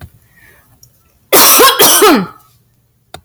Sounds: Cough